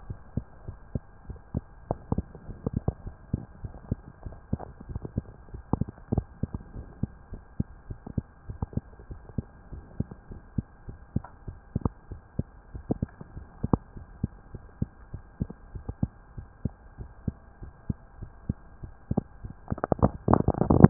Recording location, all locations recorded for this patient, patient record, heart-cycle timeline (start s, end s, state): mitral valve (MV)
aortic valve (AV)+pulmonary valve (PV)+tricuspid valve (TV)+mitral valve (MV)
#Age: Child
#Sex: Female
#Height: 116.0 cm
#Weight: 30.4 kg
#Pregnancy status: False
#Murmur: Absent
#Murmur locations: nan
#Most audible location: nan
#Systolic murmur timing: nan
#Systolic murmur shape: nan
#Systolic murmur grading: nan
#Systolic murmur pitch: nan
#Systolic murmur quality: nan
#Diastolic murmur timing: nan
#Diastolic murmur shape: nan
#Diastolic murmur grading: nan
#Diastolic murmur pitch: nan
#Diastolic murmur quality: nan
#Outcome: Normal
#Campaign: 2015 screening campaign
0.00	6.72	unannotated
6.72	6.86	S1
6.86	6.98	systole
6.98	7.12	S2
7.12	7.32	diastole
7.32	7.42	S1
7.42	7.56	systole
7.56	7.70	S2
7.70	7.86	diastole
7.86	8.00	S1
8.00	8.16	systole
8.16	8.28	S2
8.28	8.48	diastole
8.48	8.58	S1
8.58	8.76	systole
8.76	8.90	S2
8.90	9.10	diastole
9.10	9.22	S1
9.22	9.38	systole
9.38	9.52	S2
9.52	9.72	diastole
9.72	9.84	S1
9.84	9.98	systole
9.98	10.12	S2
10.12	10.30	diastole
10.30	10.42	S1
10.42	10.54	systole
10.54	10.68	S2
10.68	10.86	diastole
10.86	10.98	S1
10.98	11.12	systole
11.12	11.26	S2
11.26	11.44	diastole
11.44	11.58	S1
11.58	11.73	systole
11.73	11.84	S2
11.84	12.10	diastole
12.10	12.22	S1
12.22	12.37	systole
12.37	12.47	S2
12.47	12.72	diastole
12.72	12.84	S1
12.84	13.00	systole
13.00	13.11	S2
13.11	13.34	diastole
13.34	13.48	S1
13.48	13.62	systole
13.62	13.71	S2
13.71	13.94	diastole
13.94	14.04	S1
14.04	14.20	systole
14.20	14.34	S2
14.34	14.52	diastole
14.52	14.62	S1
14.62	14.78	systole
14.78	14.92	S2
14.92	15.11	diastole
15.11	15.24	S1
15.24	15.39	systole
15.39	15.48	S2
15.48	15.72	diastole
15.72	15.86	S1
15.86	16.00	systole
16.00	16.16	S2
16.16	16.36	diastole
16.36	16.48	S1
16.48	16.64	systole
16.64	16.72	S2
16.72	16.98	diastole
16.98	17.10	S1
17.10	17.24	systole
17.24	17.38	S2
17.38	17.58	diastole
17.58	17.72	S1
17.72	17.86	systole
17.86	18.00	S2
18.00	18.18	diastole
18.18	18.30	S1
18.30	18.46	systole
18.46	18.60	S2
18.60	20.90	unannotated